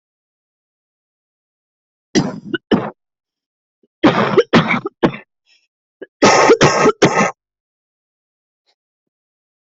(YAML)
expert_labels:
- quality: good
  cough_type: wet
  dyspnea: false
  wheezing: false
  stridor: false
  choking: false
  congestion: false
  nothing: true
  diagnosis: COVID-19
  severity: severe
age: 29
gender: female
respiratory_condition: false
fever_muscle_pain: false
status: healthy